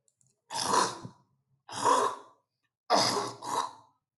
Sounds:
Throat clearing